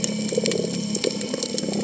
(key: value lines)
label: biophony
recorder: HydroMoth